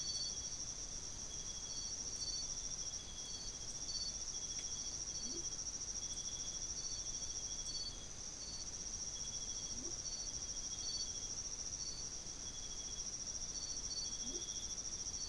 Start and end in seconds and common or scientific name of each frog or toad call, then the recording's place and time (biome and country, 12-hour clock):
5.1	5.9	Leptodactylus latrans
9.4	10.2	Leptodactylus latrans
14.2	14.6	Leptodactylus latrans
Atlantic Forest, Brazil, 4:15am